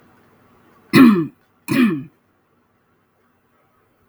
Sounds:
Throat clearing